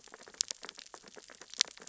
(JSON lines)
{"label": "biophony, sea urchins (Echinidae)", "recorder": "SoundTrap 600 or HydroMoth"}